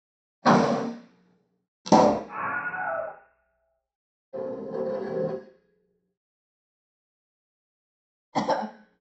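At 0.4 seconds, a car can be heard. Then, at 1.8 seconds, an explosion is heard. After that, at 2.3 seconds, someone screams. Later, at 4.3 seconds, there is the sound of furniture moving. Following that, at 8.3 seconds, a person coughs.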